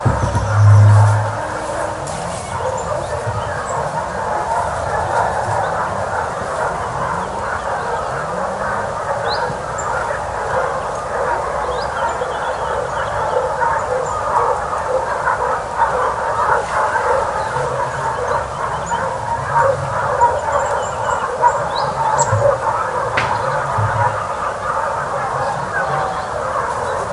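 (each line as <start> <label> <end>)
0.0 A bird chirps rhythmically in the distance. 27.1
0.0 Many dogs barking loudly and repeatedly in the distance. 27.1
0.0 Sizzling and crackling sounds outdoors nearby. 27.1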